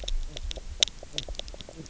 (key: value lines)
label: biophony, knock croak
recorder: SoundTrap 300